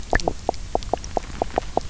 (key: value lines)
label: biophony, knock croak
recorder: SoundTrap 300